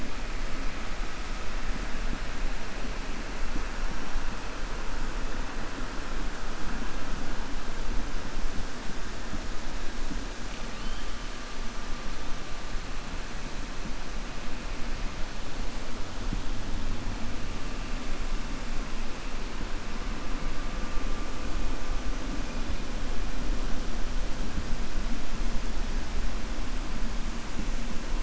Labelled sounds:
10.7	11.1	killer whale, 2.7 to 3.3 kHz

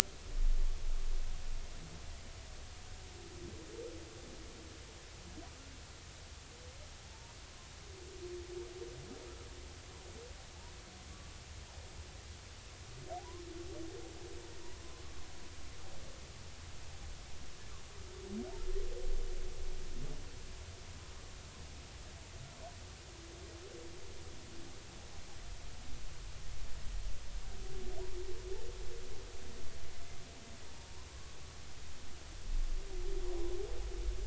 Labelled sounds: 7.0	7.3	humpback whale, 0.80 to 0.99 kHz

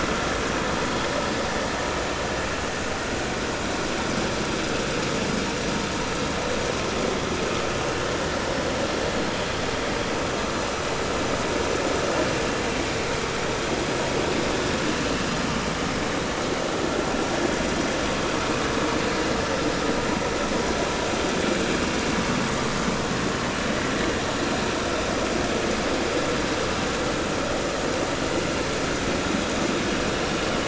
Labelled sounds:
8.4	8.6	vessel noise, 5.2 to 5.4 kHz

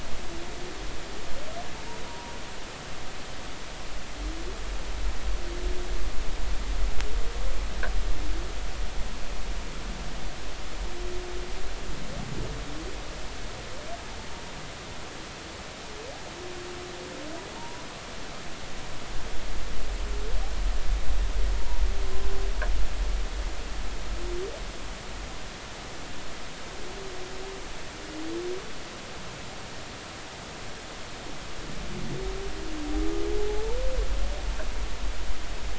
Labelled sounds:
2.1	2.3	humpback whale, 0.90 to 0.99 kHz
17.6	17.8	humpback whale, 0.86 to 1.0 kHz
21.6	21.8	humpback whale, 0.90 to 1.0 kHz

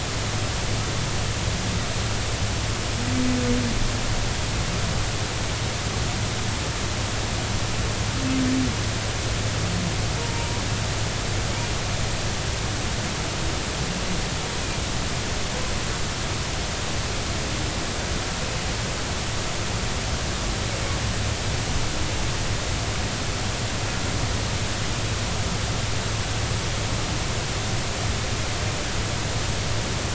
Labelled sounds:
10.2	10.6	humpback whale, 0.86 to 0.99 kHz

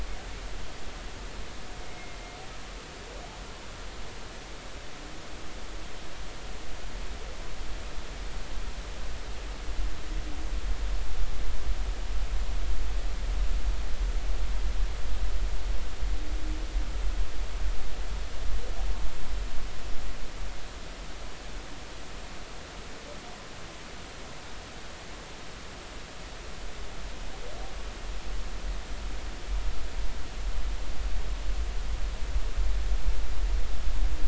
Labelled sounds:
1.8	2.2	humpback whale, 2.1 to 2.2 kHz

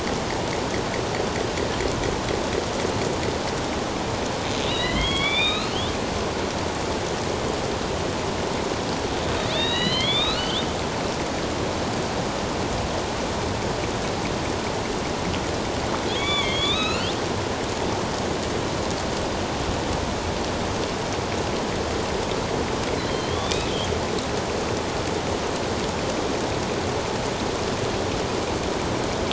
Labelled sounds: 4.6	5.8	killer whale, northern resident, A clan, AB subclan, 1.2 to 4.5 kHz
9.4	10.6	killer whale, northern resident, A clan, AB subclan, 1.8 to 4.7 kHz
16.1	17.2	killer whale, northern resident, A clan, AB subclan, 1.1 to 4.8 kHz
23.1	23.7	killer whale, northern resident, A clan, AB subclan, 3.0 to 3.9 kHz

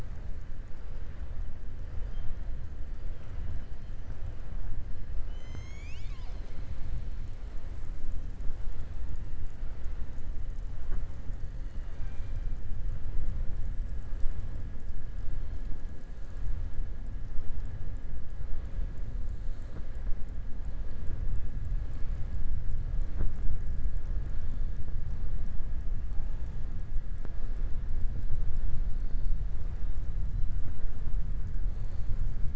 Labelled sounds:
11.6	12.5	killer whale, southern resident, 0.82 to 6.9 kHz

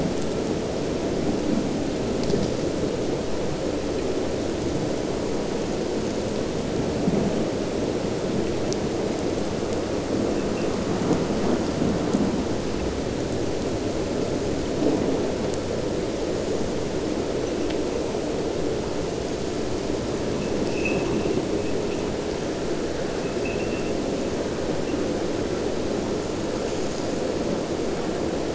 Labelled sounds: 23.3	23.9	abiotic sound, 1.8 to 2.8 kHz

